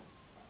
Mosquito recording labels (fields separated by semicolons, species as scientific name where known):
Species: Anopheles gambiae s.s.; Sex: female; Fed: unfed; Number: one; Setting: insect culture